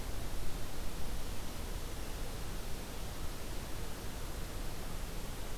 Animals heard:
forest ambience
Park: Acadia National Park